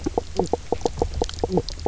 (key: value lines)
label: biophony, knock croak
recorder: SoundTrap 300